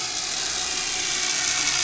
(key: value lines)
label: anthrophony, boat engine
recorder: SoundTrap 500